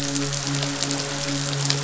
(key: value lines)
label: biophony, midshipman
recorder: SoundTrap 500